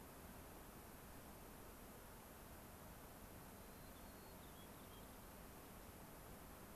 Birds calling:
unidentified bird
White-crowned Sparrow (Zonotrichia leucophrys)

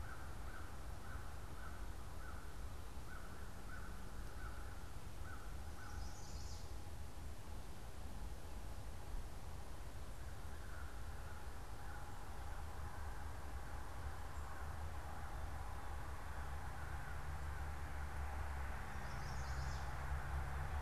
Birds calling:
American Crow (Corvus brachyrhynchos)
Chestnut-sided Warbler (Setophaga pensylvanica)

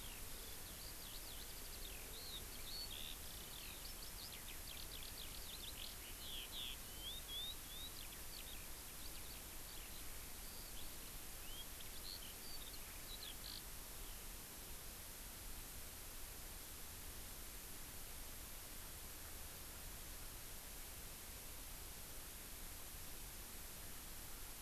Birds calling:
Eurasian Skylark (Alauda arvensis)

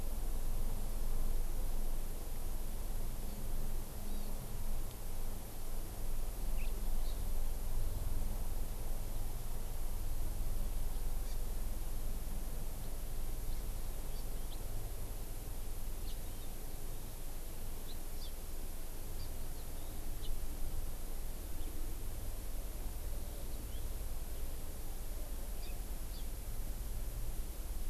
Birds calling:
House Finch (Haemorhous mexicanus)
Hawaii Amakihi (Chlorodrepanis virens)

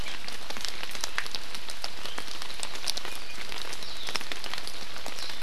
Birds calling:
Warbling White-eye (Zosterops japonicus)

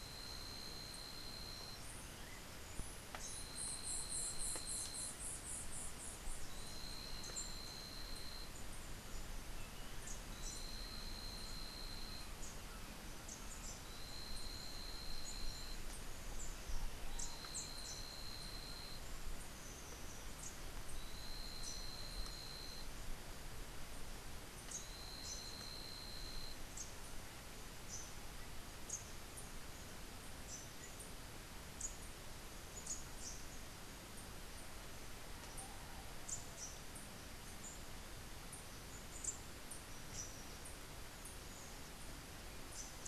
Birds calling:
Rufous-capped Warbler (Basileuterus rufifrons)
White-eared Ground-Sparrow (Melozone leucotis)

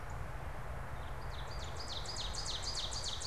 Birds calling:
Northern Cardinal (Cardinalis cardinalis)
Ovenbird (Seiurus aurocapilla)

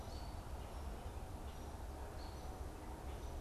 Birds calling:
American Robin (Turdus migratorius)

